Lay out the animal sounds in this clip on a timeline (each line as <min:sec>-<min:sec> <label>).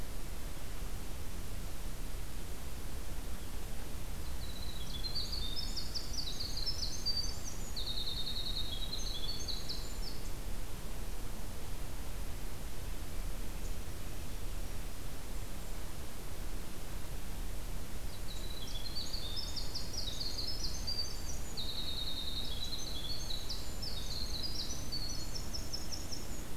0:04.0-0:10.5 Winter Wren (Troglodytes hiemalis)
0:17.9-0:26.6 Winter Wren (Troglodytes hiemalis)